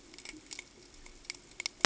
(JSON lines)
{"label": "ambient", "recorder": "HydroMoth"}